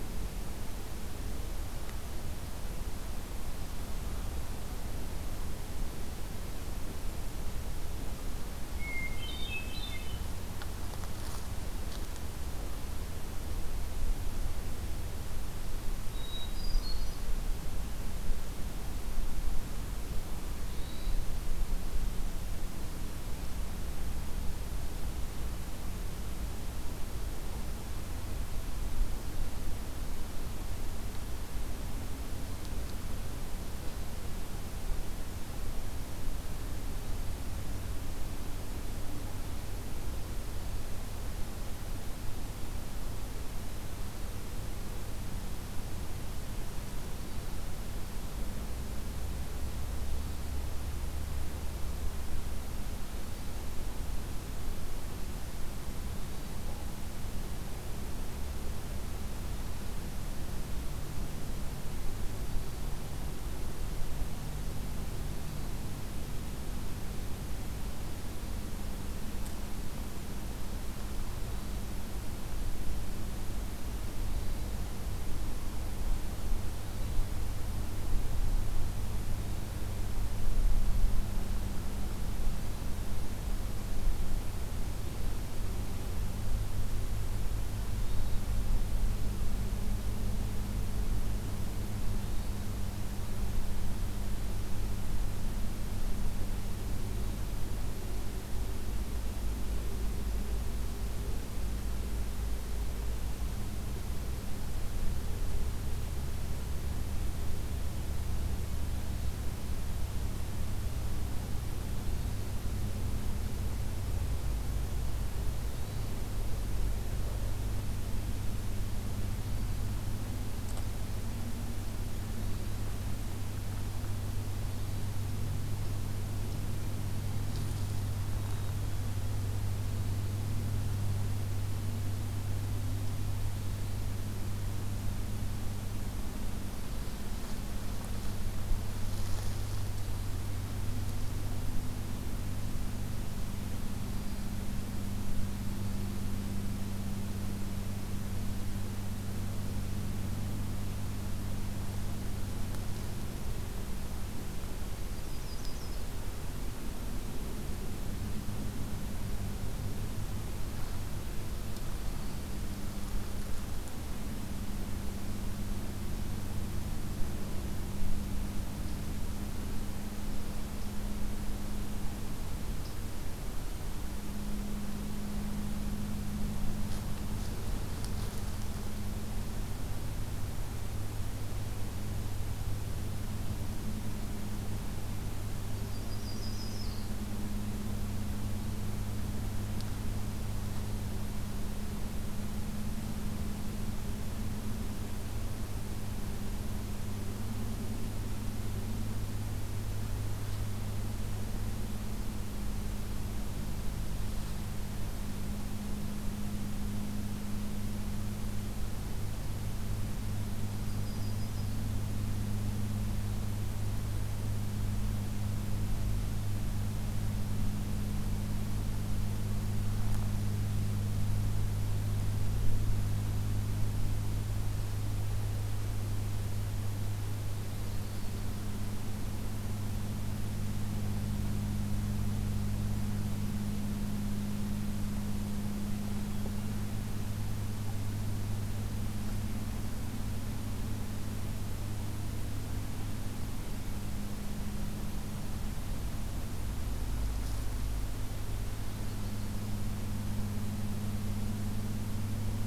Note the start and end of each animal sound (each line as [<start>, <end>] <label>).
[8.72, 10.35] Hermit Thrush (Catharus guttatus)
[15.90, 17.52] Hermit Thrush (Catharus guttatus)
[20.12, 21.75] Hermit Thrush (Catharus guttatus)
[55.83, 56.62] Hermit Thrush (Catharus guttatus)
[62.34, 63.03] Hermit Thrush (Catharus guttatus)
[71.44, 71.97] Hermit Thrush (Catharus guttatus)
[74.08, 74.62] Hermit Thrush (Catharus guttatus)
[76.72, 77.30] Hermit Thrush (Catharus guttatus)
[87.89, 88.42] Hermit Thrush (Catharus guttatus)
[92.26, 92.76] Hermit Thrush (Catharus guttatus)
[115.52, 116.21] Hermit Thrush (Catharus guttatus)
[119.08, 119.93] Hermit Thrush (Catharus guttatus)
[122.33, 122.96] Hermit Thrush (Catharus guttatus)
[124.57, 125.32] Hermit Thrush (Catharus guttatus)
[143.98, 144.60] Hermit Thrush (Catharus guttatus)
[155.09, 156.21] Yellow-rumped Warbler (Setophaga coronata)
[185.74, 187.19] Yellow-rumped Warbler (Setophaga coronata)
[210.80, 211.96] Yellow-rumped Warbler (Setophaga coronata)